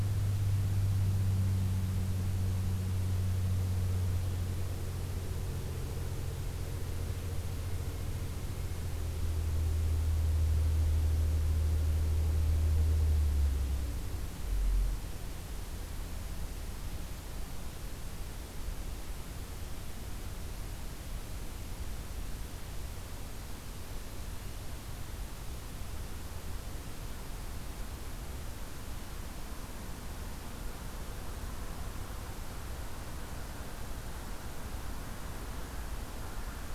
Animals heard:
forest ambience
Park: Acadia National Park